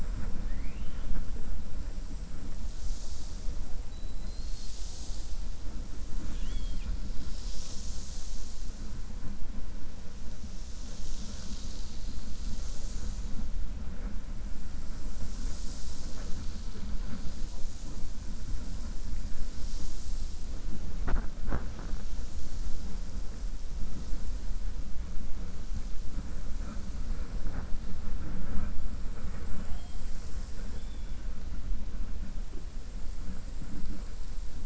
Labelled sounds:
0.4	1.2	killer whale, 0.83 to 3.3 kHz

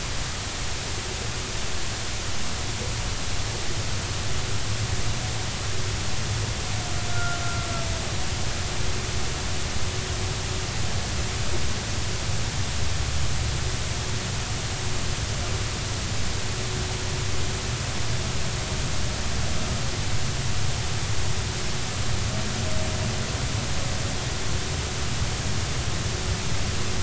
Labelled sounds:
7.1	7.4	humpback whale, 1.3 to 1.5 kHz

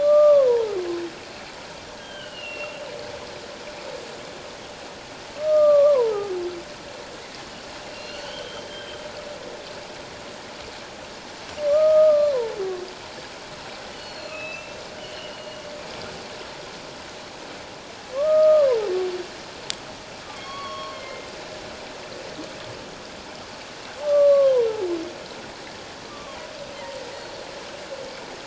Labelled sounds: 0.0	0.8	humpback whale, 0.78 to 1.3 kHz
2.0	2.8	humpback whale, 1.4 to 3.3 kHz
5.3	6.3	humpback whale, 0.78 to 1.3 kHz
7.9	9.0	humpback whale, 1.3 to 4.5 kHz
11.7	12.6	humpback whale, 0.84 to 1.3 kHz
13.9	15.6	humpback whale, 2.5 to 4.4 kHz
18.1	18.9	humpback whale, 0.78 to 1.3 kHz
20.4	21.3	humpback whale, 0.97 to 4.5 kHz
24.0	24.7	humpback whale, 0.91 to 1.2 kHz
26.0	26.5	humpback whale, 0.94 to 1.2 kHz
27.1	27.4	Pacific white-sided dolphin, 4.1 to 4.4 kHz

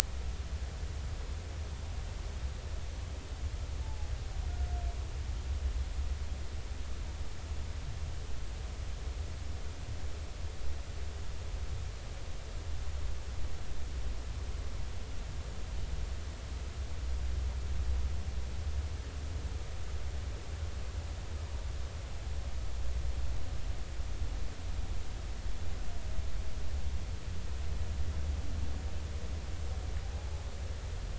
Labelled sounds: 3.8	4.1	humpback whale, 0.80 to 0.93 kHz
30.1	30.5	humpback whale, 0.80 to 0.90 kHz

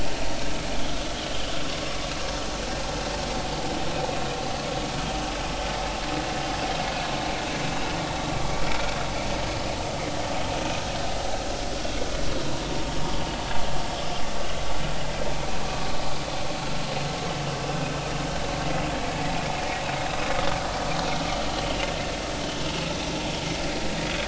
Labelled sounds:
2.6	2.9	vessel noise, 0.99 to 1.2 kHz

